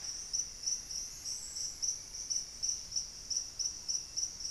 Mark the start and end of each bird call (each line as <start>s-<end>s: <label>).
0.0s-3.3s: Amazonian Grosbeak (Cyanoloxia rothschildii)
2.0s-3.2s: Buff-breasted Wren (Cantorchilus leucotis)